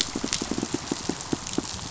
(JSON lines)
{"label": "biophony, pulse", "recorder": "SoundTrap 500"}